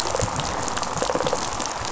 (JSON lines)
{"label": "biophony, rattle response", "recorder": "SoundTrap 500"}